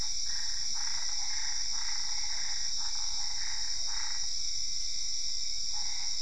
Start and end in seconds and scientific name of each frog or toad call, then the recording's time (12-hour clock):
0.0	4.0	Physalaemus cuvieri
0.0	4.3	Boana albopunctata
9:45pm